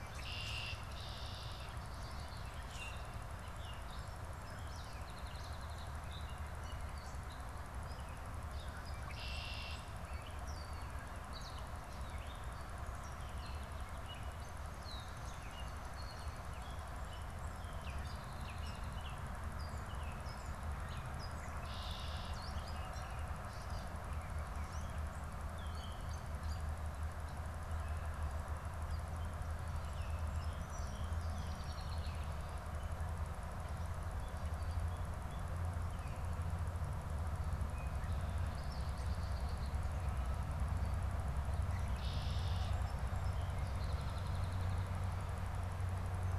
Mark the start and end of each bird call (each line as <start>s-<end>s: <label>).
0.0s-1.8s: Red-winged Blackbird (Agelaius phoeniceus)
0.0s-26.8s: Gray Catbird (Dumetella carolinensis)
2.6s-3.1s: Common Grackle (Quiscalus quiscula)
8.8s-9.9s: Red-winged Blackbird (Agelaius phoeniceus)
14.7s-15.2s: Red-winged Blackbird (Agelaius phoeniceus)
21.3s-22.6s: Red-winged Blackbird (Agelaius phoeniceus)
29.8s-32.0s: Song Sparrow (Melospiza melodia)
31.1s-32.4s: Red-winged Blackbird (Agelaius phoeniceus)
37.5s-40.0s: Red-winged Blackbird (Agelaius phoeniceus)
41.7s-42.8s: Red-winged Blackbird (Agelaius phoeniceus)
42.8s-45.1s: Song Sparrow (Melospiza melodia)